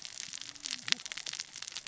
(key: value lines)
label: biophony, cascading saw
recorder: SoundTrap 600 or HydroMoth